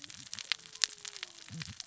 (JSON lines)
{"label": "biophony, cascading saw", "recorder": "SoundTrap 600 or HydroMoth"}